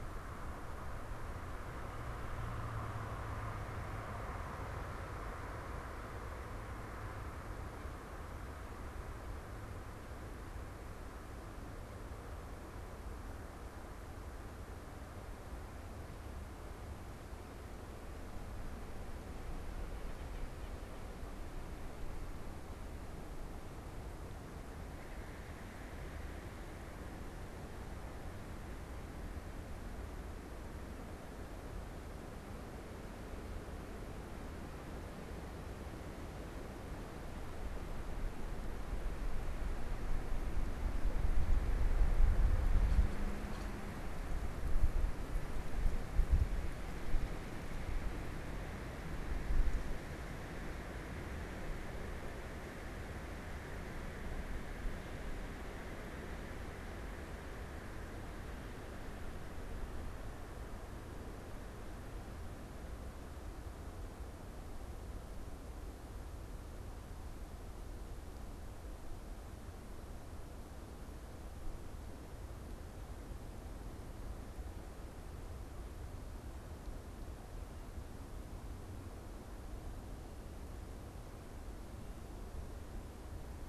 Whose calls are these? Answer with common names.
White-breasted Nuthatch